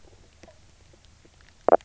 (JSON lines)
{"label": "biophony, knock croak", "recorder": "SoundTrap 300"}